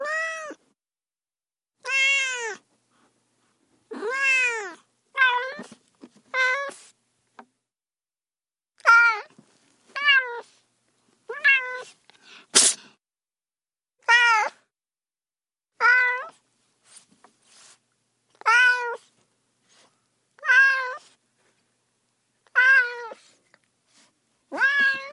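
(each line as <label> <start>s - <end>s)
Cat meows repeatedly with pauses. 0.0s - 25.1s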